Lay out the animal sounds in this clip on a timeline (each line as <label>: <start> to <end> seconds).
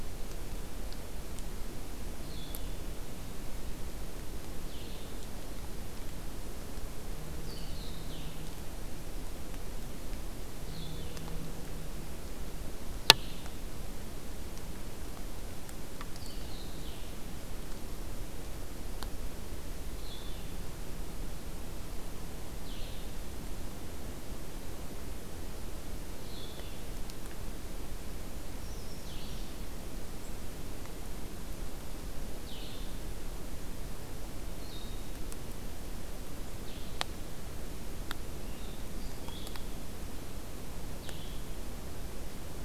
Blue-headed Vireo (Vireo solitarius): 0.0 to 23.2 seconds
Blue-headed Vireo (Vireo solitarius): 26.1 to 42.6 seconds
Brown Creeper (Certhia americana): 28.2 to 29.5 seconds